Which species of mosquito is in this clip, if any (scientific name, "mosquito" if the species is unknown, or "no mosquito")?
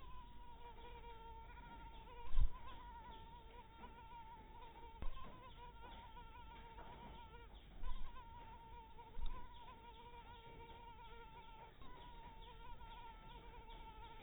mosquito